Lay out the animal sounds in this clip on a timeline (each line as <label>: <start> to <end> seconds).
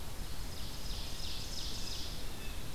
Red-eyed Vireo (Vireo olivaceus): 0.0 to 2.7 seconds
Ovenbird (Seiurus aurocapilla): 0.2 to 2.7 seconds
Blue Jay (Cyanocitta cristata): 1.1 to 2.6 seconds